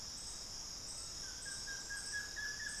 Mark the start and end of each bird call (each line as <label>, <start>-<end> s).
Buff-throated Woodcreeper (Xiphorhynchus guttatus), 0.0-2.8 s